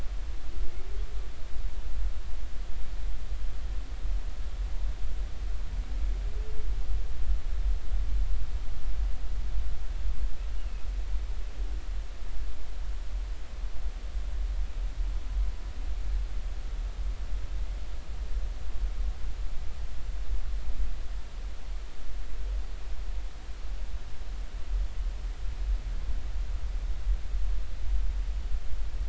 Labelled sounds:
10.6	10.9	humpback whale, 2.5 to 2.9 kHz

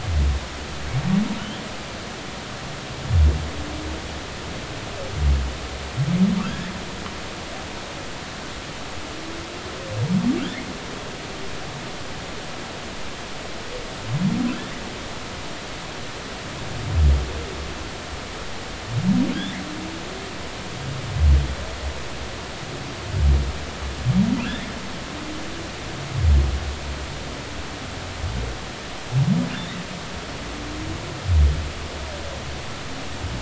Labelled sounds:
6.4	6.7	humpback whale, 1.5 to 2.1 kHz

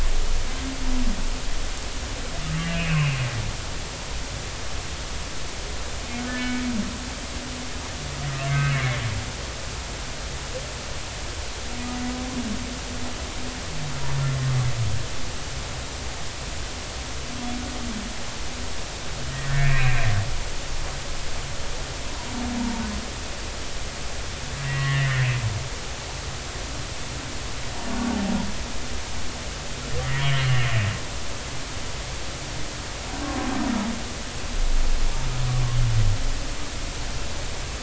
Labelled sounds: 2.6	3.2	humpback whale, 2.3 to 2.9 kHz
6.3	6.6	humpback whale, 1.7 to 2.3 kHz
8.4	9.0	humpback whale, 2.0 to 2.4 kHz
19.3	20.0	humpback whale, 1.8 to 2.8 kHz
24.6	25.2	humpback whale, 1.7 to 2.1 kHz
30.1	30.4	humpback whale, 2.8 to 3.4 kHz

